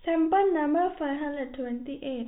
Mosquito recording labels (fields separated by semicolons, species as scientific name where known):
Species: no mosquito; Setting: cup